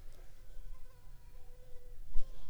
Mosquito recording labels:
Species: Anopheles funestus s.l.; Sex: female; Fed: unfed; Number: one; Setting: cup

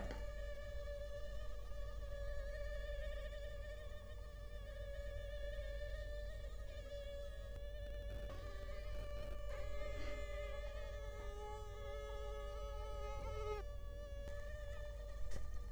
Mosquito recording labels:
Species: Culex quinquefasciatus; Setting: cup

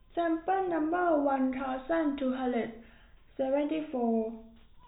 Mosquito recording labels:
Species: no mosquito; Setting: cup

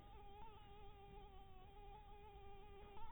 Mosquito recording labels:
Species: Anopheles maculatus; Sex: female; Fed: blood-fed; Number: one; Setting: cup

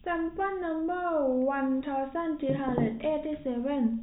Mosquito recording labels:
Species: no mosquito; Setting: cup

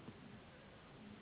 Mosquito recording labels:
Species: Anopheles gambiae s.s.; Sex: female; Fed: unfed; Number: one; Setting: insect culture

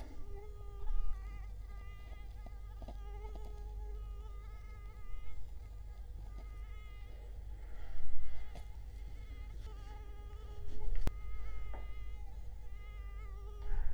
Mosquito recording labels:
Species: Culex quinquefasciatus; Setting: cup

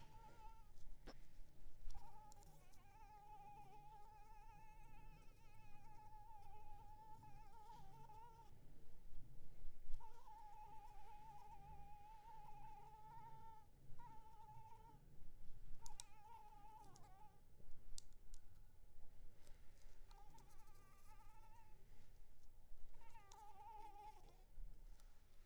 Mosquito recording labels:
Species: Anopheles arabiensis; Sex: female; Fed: unfed; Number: one; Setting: cup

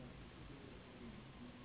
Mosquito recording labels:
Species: Anopheles gambiae s.s.; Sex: female; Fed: unfed; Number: one; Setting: insect culture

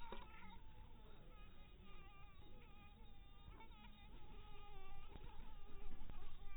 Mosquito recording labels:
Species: mosquito; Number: one; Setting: cup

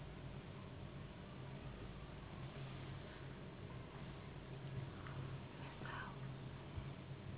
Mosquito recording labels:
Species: Anopheles gambiae s.s.; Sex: female; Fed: unfed; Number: one; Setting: insect culture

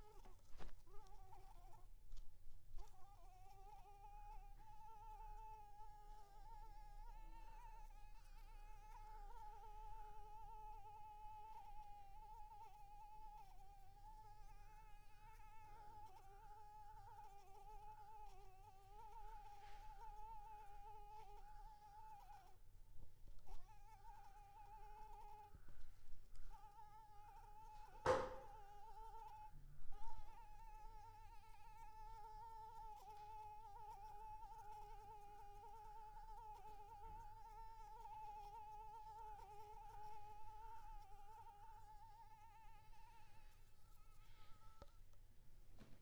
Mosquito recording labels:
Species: Anopheles arabiensis; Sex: female; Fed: blood-fed; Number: one; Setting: cup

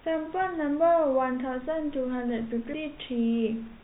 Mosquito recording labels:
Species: no mosquito; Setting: cup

